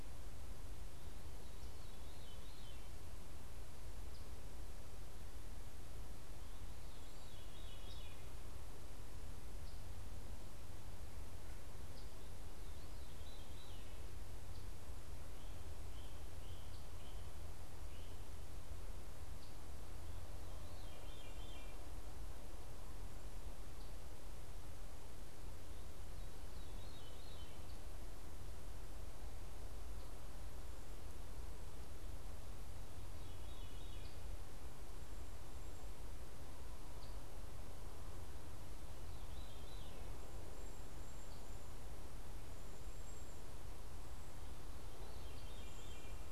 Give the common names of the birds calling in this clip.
Veery, Eastern Phoebe, Cedar Waxwing